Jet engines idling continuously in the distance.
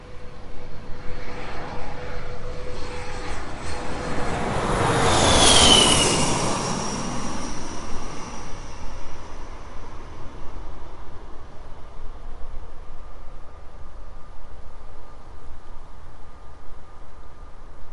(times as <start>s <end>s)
10.6s 17.9s